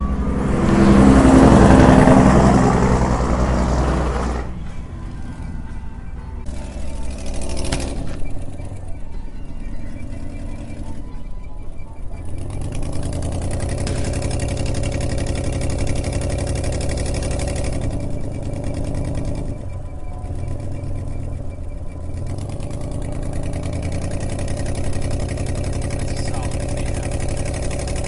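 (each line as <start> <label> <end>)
0.0 A helicopter flies by with increasing sound that quickly fades away. 5.2
5.5 Music is playing softly in the background. 15.1
6.8 An engine is buzzing loudly. 8.7
11.0 An engine grows louder and then fades away. 20.3
20.4 An engine grows louder and then maintains a steady sound nearby. 28.1
26.0 A man is speaking quietly in the background. 28.1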